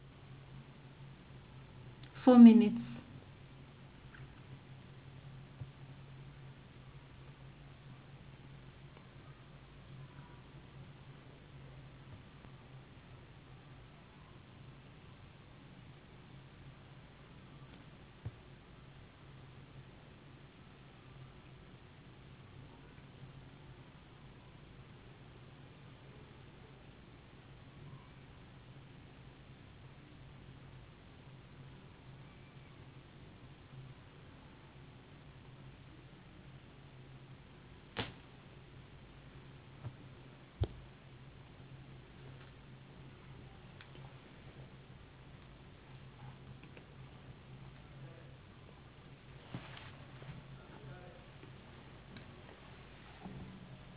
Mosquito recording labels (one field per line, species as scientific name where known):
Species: no mosquito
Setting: insect culture